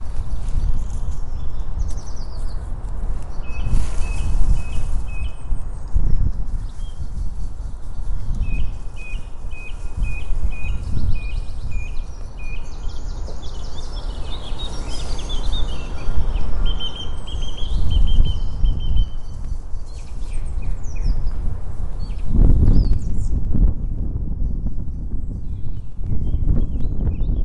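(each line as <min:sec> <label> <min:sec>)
0:00.0 Birds singing. 0:27.4
0:03.2 Rustling grass and birds singing. 0:05.4
0:05.8 Wind blowing. 0:06.5
0:09.4 Cars pass by in the ambient noise. 0:16.8
0:17.2 Rustling grass and wind noise. 0:19.3
0:21.8 Birds singing and wind blowing. 0:27.4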